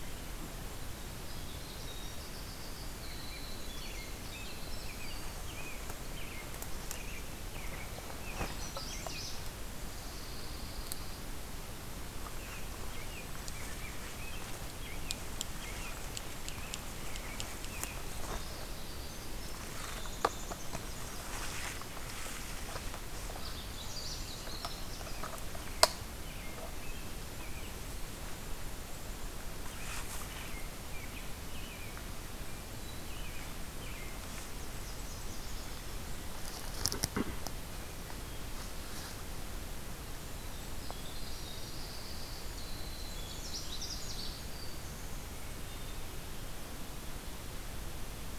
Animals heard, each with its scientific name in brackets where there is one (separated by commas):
American Robin (Turdus migratorius), Yellow-rumped Warbler (Setophaga coronata), Common Yellowthroat (Geothlypis trichas), Magnolia Warbler (Setophaga magnolia), Black-capped Chickadee (Poecile atricapillus), Pine Warbler (Setophaga pinus), Winter Wren (Troglodytes hiemalis), Golden-crowned Kinglet (Regulus satrapa)